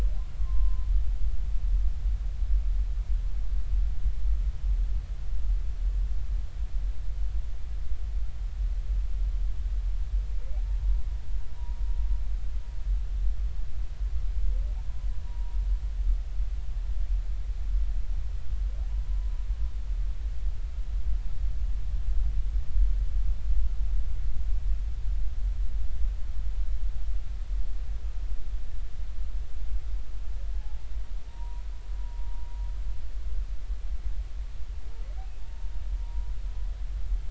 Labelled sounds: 0.4	0.9	humpback whale, 0.99 to 1.2 kHz
11.6	11.8	humpback whale, 0.83 to 1.0 kHz
15.2	15.6	humpback whale, 0.90 to 0.99 kHz
18.9	19.3	humpback whale, 0.93 to 1.0 kHz
30.5	31.6	humpback whale, 0.80 to 1.0 kHz
32.0	32.5	humpback whale, 0.90 to 0.99 kHz
37.0	37.2	humpback whale, 0.90 to 1.1 kHz

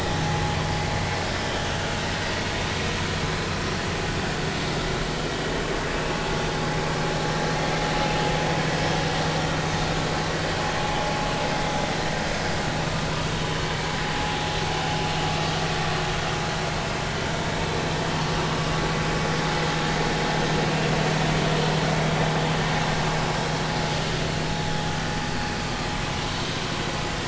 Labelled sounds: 1.7	2.1	vessel noise, 2.7 to 2.9 kHz

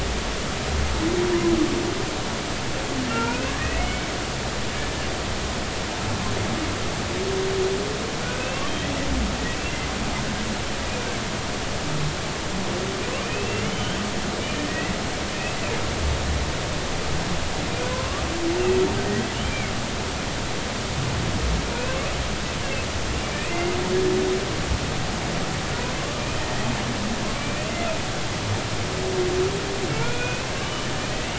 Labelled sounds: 3.1	4.1	humpback whale, 1.0 to 2.8 kHz
8.2	8.6	humpback whale, 1.4 to 2.8 kHz
13.2	14.9	humpback whale, 1.8 to 3.3 kHz
17.9	18.3	humpback whale, 0.96 to 1.3 kHz
19.4	19.7	humpback whale, 2.1 to 2.5 kHz
23.4	23.7	humpback whale, 2.0 to 2.9 kHz
26.0	26.7	humpback whale, 1.0 to 2.5 kHz
27.4	27.7	humpback whale, 2.2 to 2.6 kHz
29.9	30.5	humpback whale, 1.3 to 2.7 kHz

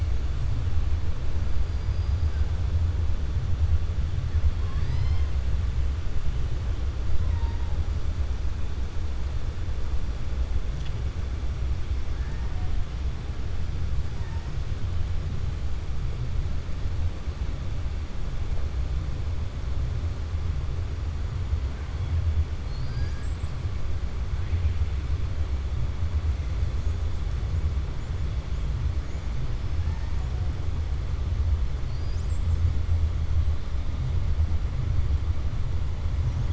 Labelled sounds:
22.8	23.3	killer whale, 1.5 to 2.3 kHz

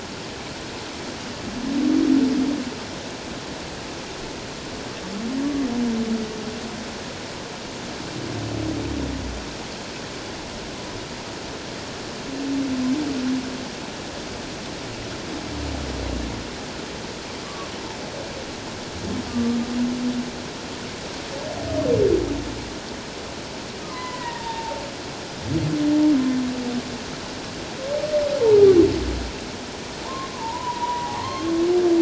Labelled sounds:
19.3	19.6	humpback whale, 1.1 to 1.3 kHz
23.9	24.8	humpback whale, 0.81 to 3.8 kHz
30.0	31.5	humpback whale, 0.84 to 1.1 kHz

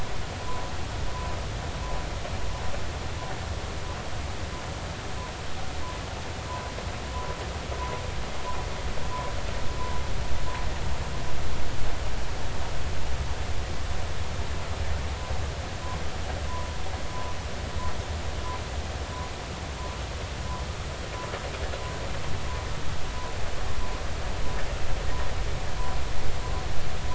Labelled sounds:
16.5	16.7	humpback whale, 0.93 to 1.1 kHz

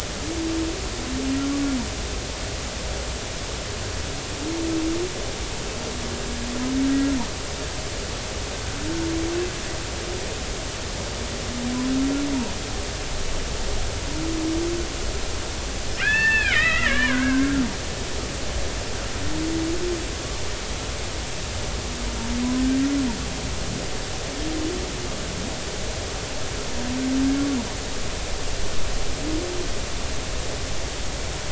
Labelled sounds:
16.0	17.6	killer whale, Bigg's (transient), 1.2 to 3.6 kHz

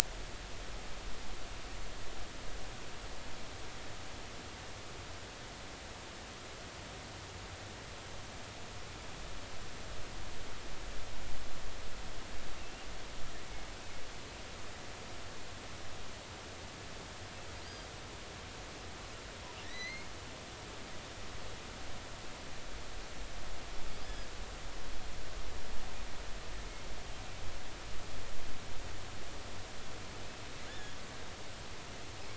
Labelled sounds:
12.6	12.9	killer whale, offshore, 2.6 to 2.9 kHz
17.6	17.9	killer whale, offshore, 4.6 to 4.9 kHz
19.6	20.1	killer whale, offshore, 1.8 to 6.0 kHz
24.0	24.3	killer whale, offshore, 4.7 to 5.2 kHz
30.7	31.0	killer whale, offshore, 1.6 to 3.7 kHz

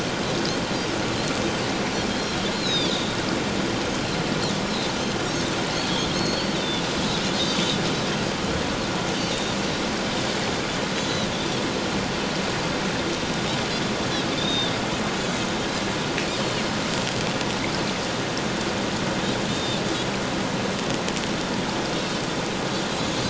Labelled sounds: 2.5	3.2	Pacific white-sided dolphin, 3.2 to 5.4 kHz
5.7	6.8	Pacific white-sided dolphin, 3.4 to 4.7 kHz
7.3	7.8	Pacific white-sided dolphin, 3.6 to 6.2 kHz
10.9	11.6	Pacific white-sided dolphin, 3.2 to 6.9 kHz
14.4	14.7	Pacific white-sided dolphin, 3.4 to 3.8 kHz
19.5	19.8	Pacific white-sided dolphin, 3.5 to 3.7 kHz
23.0	23.2	Pacific white-sided dolphin, 6.6 to 6.9 kHz

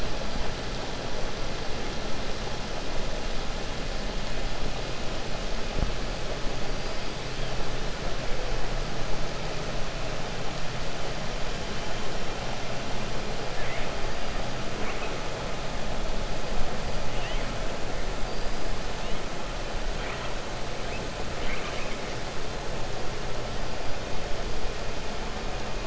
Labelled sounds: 21.3	22.0	killer whale, 1.2 to 3.7 kHz

